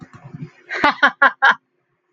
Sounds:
Laughter